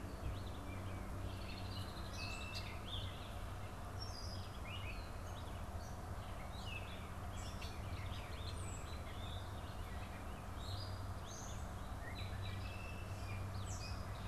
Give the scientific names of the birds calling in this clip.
Dumetella carolinensis, Vireo olivaceus, Agelaius phoeniceus